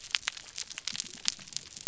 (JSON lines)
{"label": "biophony", "recorder": "SoundTrap 300"}